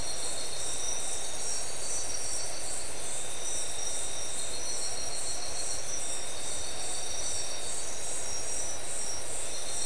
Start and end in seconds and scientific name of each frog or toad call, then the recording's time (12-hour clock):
none
3:00am